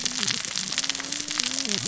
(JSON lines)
{"label": "biophony, cascading saw", "recorder": "SoundTrap 600 or HydroMoth"}